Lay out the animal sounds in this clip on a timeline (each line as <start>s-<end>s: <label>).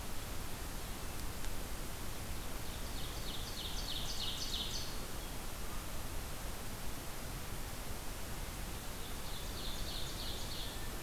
2.1s-5.3s: Ovenbird (Seiurus aurocapilla)
8.7s-10.9s: Ovenbird (Seiurus aurocapilla)